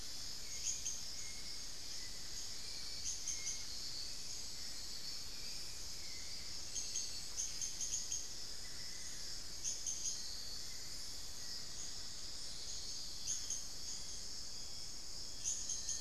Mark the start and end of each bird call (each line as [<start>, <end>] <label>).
[0.00, 8.21] Hauxwell's Thrush (Turdus hauxwelli)
[0.00, 16.00] unidentified bird
[8.40, 9.51] Amazonian Barred-Woodcreeper (Dendrocolaptes certhia)
[9.51, 16.00] Little Tinamou (Crypturellus soui)
[15.30, 16.00] Long-billed Woodcreeper (Nasica longirostris)